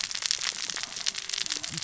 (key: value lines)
label: biophony, cascading saw
recorder: SoundTrap 600 or HydroMoth